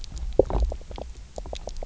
{"label": "biophony, knock croak", "recorder": "SoundTrap 300"}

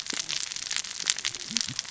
{"label": "biophony, cascading saw", "recorder": "SoundTrap 600 or HydroMoth"}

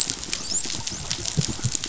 {"label": "biophony, dolphin", "recorder": "SoundTrap 500"}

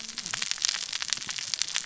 {"label": "biophony, cascading saw", "recorder": "SoundTrap 600 or HydroMoth"}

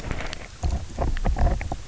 {"label": "biophony, knock croak", "recorder": "SoundTrap 300"}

